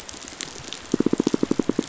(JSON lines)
{"label": "biophony, pulse", "recorder": "SoundTrap 500"}